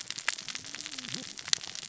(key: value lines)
label: biophony, cascading saw
recorder: SoundTrap 600 or HydroMoth